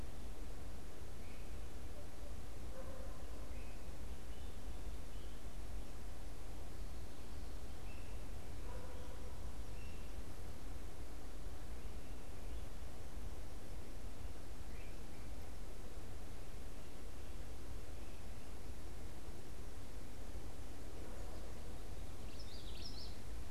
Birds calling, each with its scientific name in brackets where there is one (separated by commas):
Great Crested Flycatcher (Myiarchus crinitus), Common Yellowthroat (Geothlypis trichas)